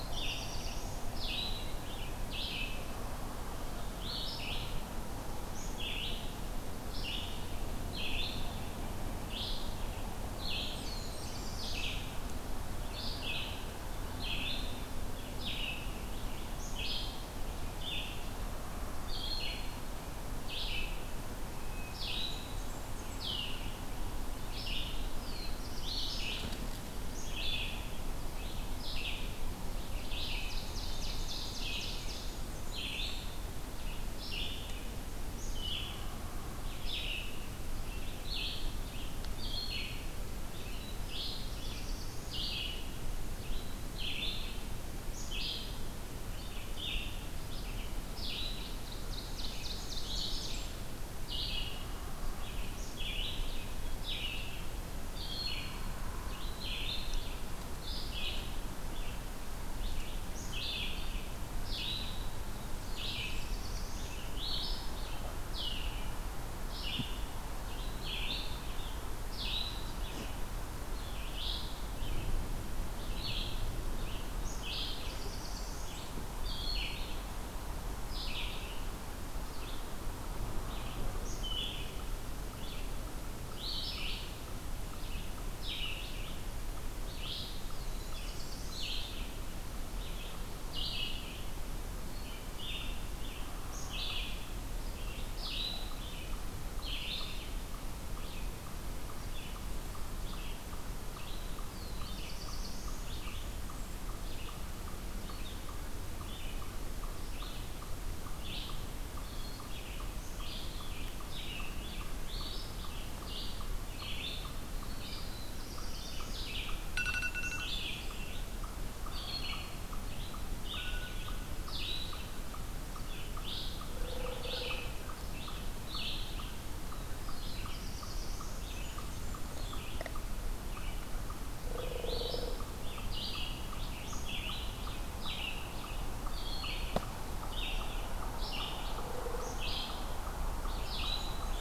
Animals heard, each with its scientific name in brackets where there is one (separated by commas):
Black-capped Chickadee (Poecile atricapillus), Black-throated Blue Warbler (Setophaga caerulescens), Red-eyed Vireo (Vireo olivaceus), Blackburnian Warbler (Setophaga fusca), Ovenbird (Seiurus aurocapilla)